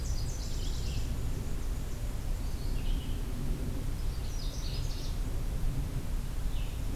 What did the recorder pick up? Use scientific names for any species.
Leiothlypis ruficapilla, Mniotilta varia, Vireo olivaceus, Cardellina canadensis